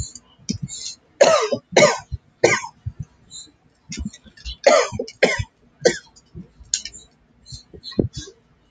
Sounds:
Cough